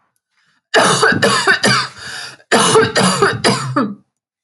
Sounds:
Cough